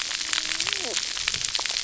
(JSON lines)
{"label": "biophony, cascading saw", "recorder": "SoundTrap 300"}